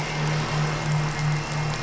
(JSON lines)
{"label": "anthrophony, boat engine", "recorder": "SoundTrap 500"}